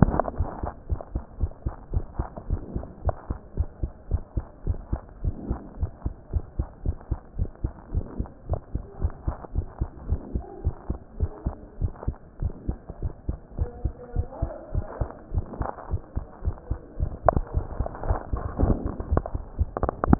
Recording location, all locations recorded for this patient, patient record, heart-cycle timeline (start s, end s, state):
mitral valve (MV)
aortic valve (AV)+pulmonary valve (PV)+tricuspid valve (TV)+mitral valve (MV)
#Age: Child
#Sex: Male
#Height: 115.0 cm
#Weight: 18.9 kg
#Pregnancy status: False
#Murmur: Absent
#Murmur locations: nan
#Most audible location: nan
#Systolic murmur timing: nan
#Systolic murmur shape: nan
#Systolic murmur grading: nan
#Systolic murmur pitch: nan
#Systolic murmur quality: nan
#Diastolic murmur timing: nan
#Diastolic murmur shape: nan
#Diastolic murmur grading: nan
#Diastolic murmur pitch: nan
#Diastolic murmur quality: nan
#Outcome: Abnormal
#Campaign: 2015 screening campaign
0.00	1.92	unannotated
1.92	2.06	S1
2.06	2.16	systole
2.16	2.30	S2
2.30	2.48	diastole
2.48	2.60	S1
2.60	2.72	systole
2.72	2.82	S2
2.82	3.00	diastole
3.00	3.14	S1
3.14	3.26	systole
3.26	3.38	S2
3.38	3.56	diastole
3.56	3.70	S1
3.70	3.80	systole
3.80	3.90	S2
3.90	4.10	diastole
4.10	4.24	S1
4.24	4.34	systole
4.34	4.44	S2
4.44	4.66	diastole
4.66	4.80	S1
4.80	4.90	systole
4.90	5.00	S2
5.00	5.20	diastole
5.20	5.34	S1
5.34	5.44	systole
5.44	5.58	S2
5.58	5.80	diastole
5.80	5.90	S1
5.90	6.02	systole
6.02	6.14	S2
6.14	6.32	diastole
6.32	6.44	S1
6.44	6.56	systole
6.56	6.66	S2
6.66	6.84	diastole
6.84	6.96	S1
6.96	7.10	systole
7.10	7.20	S2
7.20	7.38	diastole
7.38	7.50	S1
7.50	7.62	systole
7.62	7.72	S2
7.72	7.94	diastole
7.94	8.08	S1
8.08	8.18	systole
8.18	8.28	S2
8.28	8.48	diastole
8.48	8.60	S1
8.60	8.74	systole
8.74	8.82	S2
8.82	8.98	diastole
8.98	9.12	S1
9.12	9.26	systole
9.26	9.36	S2
9.36	9.54	diastole
9.54	9.66	S1
9.66	9.80	systole
9.80	9.90	S2
9.90	10.06	diastole
10.06	10.20	S1
10.20	10.34	systole
10.34	10.44	S2
10.44	10.64	diastole
10.64	10.74	S1
10.74	10.88	systole
10.88	10.98	S2
10.98	11.16	diastole
11.16	11.30	S1
11.30	11.44	systole
11.44	11.56	S2
11.56	11.78	diastole
11.78	11.92	S1
11.92	12.06	systole
12.06	12.18	S2
12.18	12.40	diastole
12.40	12.54	S1
12.54	12.68	systole
12.68	12.80	S2
12.80	13.02	diastole
13.02	13.12	S1
13.12	13.28	systole
13.28	13.38	S2
13.38	13.56	diastole
13.56	13.70	S1
13.70	13.84	systole
13.84	13.94	S2
13.94	14.14	diastole
14.14	14.26	S1
14.26	14.40	systole
14.40	14.52	S2
14.52	14.72	diastole
14.72	14.86	S1
14.86	15.00	systole
15.00	15.10	S2
15.10	15.32	diastole
15.32	15.46	S1
15.46	15.58	systole
15.58	15.70	S2
15.70	15.90	diastole
15.90	16.02	S1
16.02	16.16	systole
16.16	16.26	S2
16.26	16.44	diastole
16.44	16.56	S1
16.56	16.70	systole
16.70	16.80	S2
16.80	16.99	diastole
16.99	20.19	unannotated